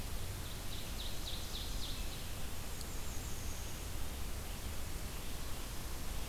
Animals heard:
unidentified call, Ovenbird (Seiurus aurocapilla)

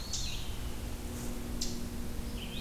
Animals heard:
Eastern Chipmunk (Tamias striatus), Red-eyed Vireo (Vireo olivaceus), Eastern Wood-Pewee (Contopus virens)

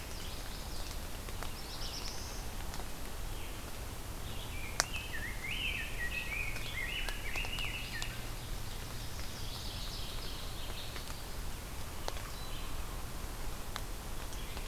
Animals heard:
Rose-breasted Grosbeak (Pheucticus ludovicianus), Mourning Warbler (Geothlypis philadelphia), Black-throated Blue Warbler (Setophaga caerulescens), Red-eyed Vireo (Vireo olivaceus), Chestnut-sided Warbler (Setophaga pensylvanica)

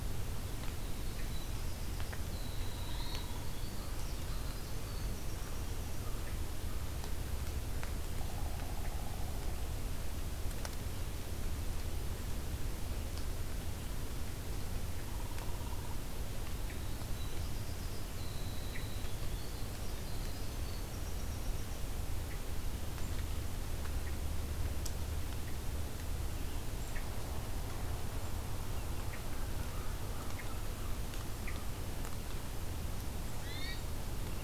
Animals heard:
Hermit Thrush (Catharus guttatus), American Crow (Corvus brachyrhynchos), Winter Wren (Troglodytes hiemalis), Pileated Woodpecker (Dryocopus pileatus)

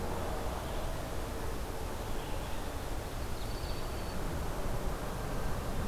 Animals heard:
Broad-winged Hawk (Buteo platypterus), Red-eyed Vireo (Vireo olivaceus)

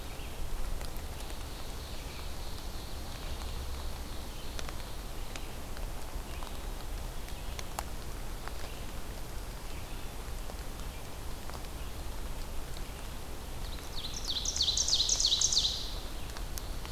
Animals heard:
Red-eyed Vireo (Vireo olivaceus), Ovenbird (Seiurus aurocapilla)

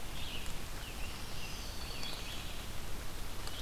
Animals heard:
Scarlet Tanager (Piranga olivacea), Red-eyed Vireo (Vireo olivaceus), Black-throated Green Warbler (Setophaga virens)

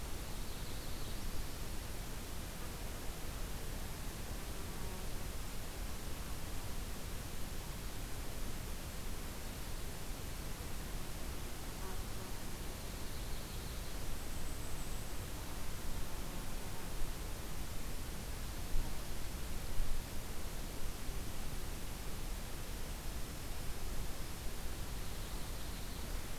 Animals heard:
Golden-crowned Kinglet (Regulus satrapa), Yellow-rumped Warbler (Setophaga coronata)

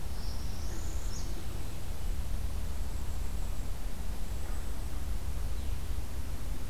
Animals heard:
Northern Parula (Setophaga americana), Golden-crowned Kinglet (Regulus satrapa)

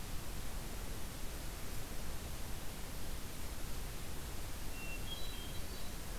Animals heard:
Hermit Thrush (Catharus guttatus)

